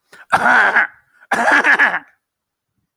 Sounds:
Throat clearing